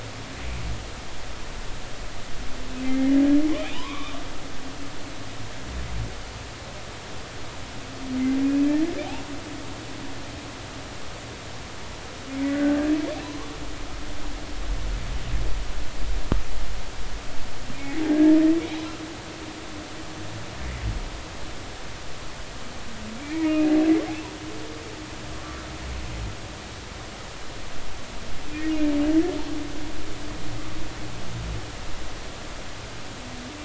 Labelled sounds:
2.8	4.2	humpback whale, 0.86 to 4.0 kHz
8.4	8.7	humpback whale, 2.4 to 2.6 kHz
12.5	13.5	humpback whale, 0.86 to 1.7 kHz
23.2	23.7	humpback whale, 1.8 to 2.6 kHz
25.3	25.6	humpback whale, 1.1 to 1.2 kHz

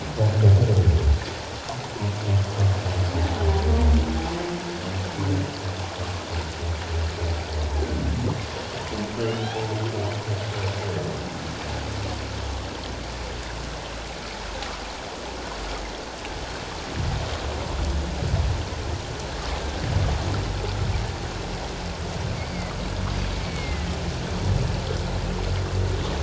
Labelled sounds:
7.8	8.0	humpback whale, 1.5 to 1.7 kHz
9.2	9.8	humpback whale, 0.78 to 3.5 kHz
23.4	23.9	humpback whale, 1.8 to 2.3 kHz

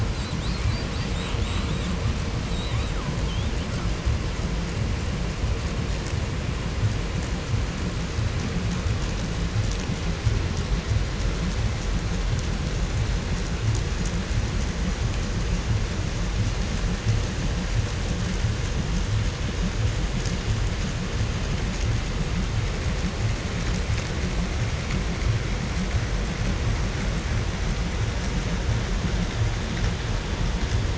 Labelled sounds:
0.0	2.1	killer whale, 0.63 to 8.0 kHz
2.4	4.0	killer whale, 0.63 to 8.0 kHz

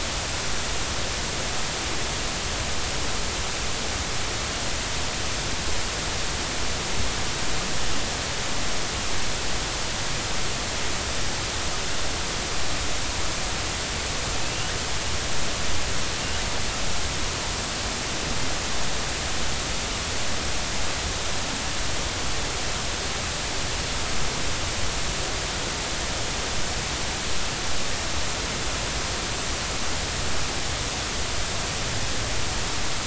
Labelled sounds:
14.4	14.7	killer whale, southern resident, L pod, call S19, 2.5 to 3.0 kHz

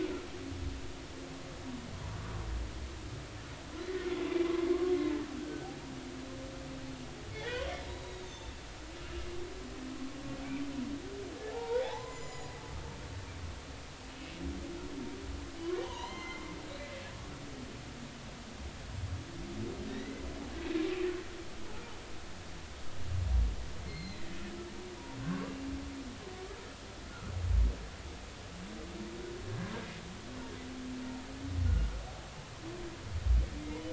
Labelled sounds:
5.4	5.7	humpback whale, 1.5 to 1.6 kHz
7.3	8.5	humpback whale, 1.7 to 4.0 kHz
11.5	12.5	humpback whale, 0.80 to 7.1 kHz
15.8	17.3	humpback whale, 0.86 to 4.2 kHz
19.9	20.2	humpback whale, 1.8 to 2.1 kHz
23.8	24.2	humpback whale, 2.0 to 4.3 kHz
25.2	25.5	humpback whale, 1.0 to 1.2 kHz
31.7	31.9	humpback whale, 1.4 to 1.5 kHz
33.6	33.9	humpback whale, 2.0 to 2.2 kHz

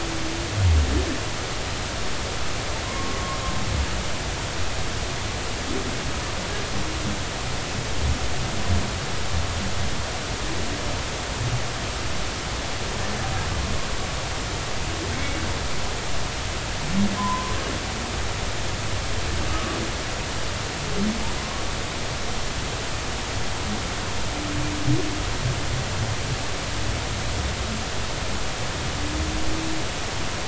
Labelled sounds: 2.8	3.2	humpback whale, 0.96 to 1.2 kHz
15.1	15.4	humpback whale, 2.1 to 2.3 kHz
17.2	17.5	humpback whale, 0.93 to 1.1 kHz
19.5	19.8	humpback whale, 1.1 to 1.3 kHz
21.4	21.6	humpback whale, 0.96 to 1.2 kHz

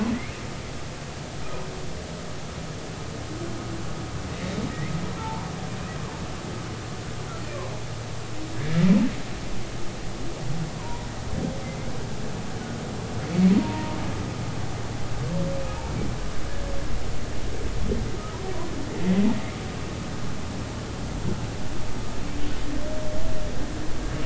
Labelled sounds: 6.2	6.5	humpback whale, 0.80 to 1.0 kHz
10.8	11.0	humpback whale, 0.90 to 1.1 kHz
11.6	11.9	humpback whale, 2.0 to 2.2 kHz
13.6	14.0	humpback whale, 0.86 to 0.99 kHz

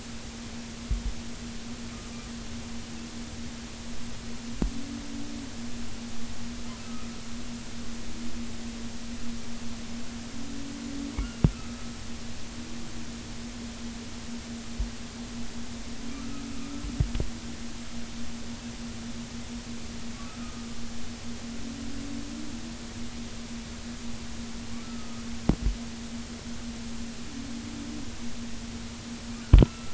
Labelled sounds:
6.8	7.1	humpback whale, 1.2 to 1.4 kHz
11.5	11.9	humpback whale, 1.2 to 1.4 kHz
16.6	16.8	humpback whale, 1.2 to 1.4 kHz
20.4	20.7	humpback whale, 1.2 to 1.4 kHz
24.8	25.2	humpback whale, 1.2 to 1.4 kHz
29.6	29.9	humpback whale, 1.3 to 1.4 kHz

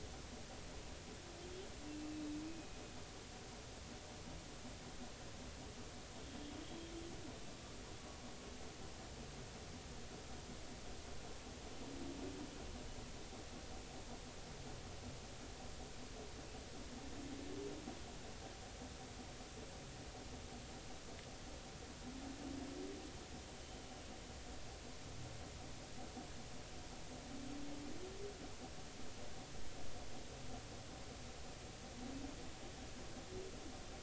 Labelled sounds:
6.2	6.5	humpback whale, 3.1 to 3.3 kHz
23.5	23.8	humpback whale, 3.0 to 3.1 kHz

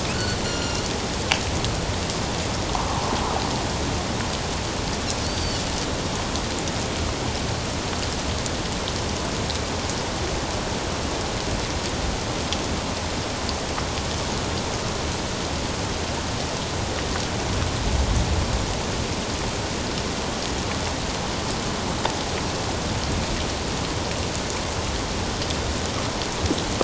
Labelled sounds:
0.4	0.9	Pacific white-sided dolphin, 1.4 to 7.2 kHz
5.2	5.6	Pacific white-sided dolphin, 4.2 to 4.7 kHz

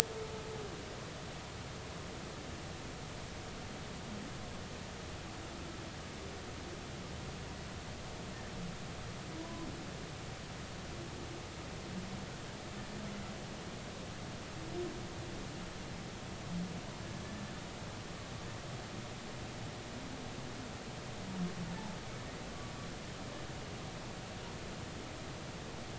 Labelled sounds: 9.4	9.7	humpback whale, 0.93 to 1.1 kHz

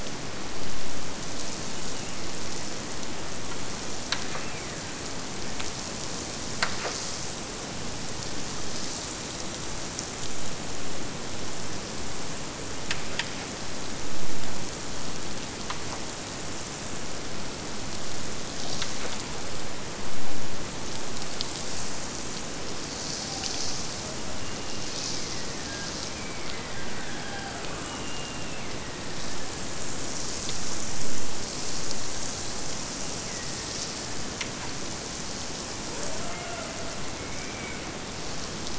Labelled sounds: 1.5	2.8	killer whale, Bigg's (transient), Gulf of Alaska transient, 1.9 to 3.1 kHz
4.3	5.1	killer whale, Bigg's (transient), Gulf of Alaska transient, 1.4 to 2.9 kHz
24.3	30.2	killer whale, Bigg's (transient), Gulf of Alaska transient, 0.21 to 5.2 kHz
33.2	35.2	killer whale, Bigg's (transient), Gulf of Alaska transient, 1.3 to 2.5 kHz

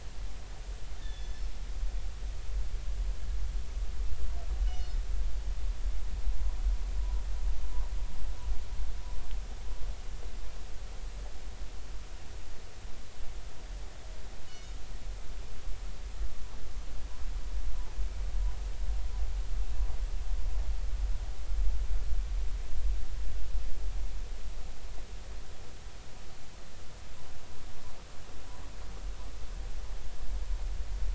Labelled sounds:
1.0	2.5	killer whale, northern resident, G clan, call N24ii, 1.7 to 5.3 kHz
4.7	5.0	killer whale, northern resident, G clan, call N24ii, 3.6 to 5.2 kHz
14.5	14.7	killer whale, northern resident, G clan, call N24ii, 2.9 to 6.8 kHz

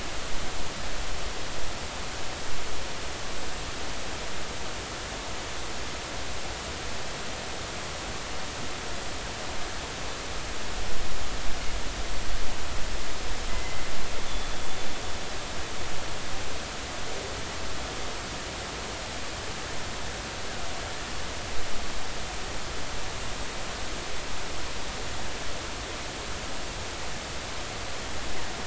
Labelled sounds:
13.5	14.6	killer whale, northern resident, G clan, 2.0 to 3.5 kHz

